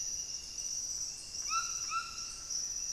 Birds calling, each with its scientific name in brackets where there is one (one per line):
White-throated Toucan (Ramphastos tucanus)
unidentified bird